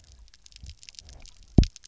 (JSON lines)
{"label": "biophony, double pulse", "recorder": "SoundTrap 300"}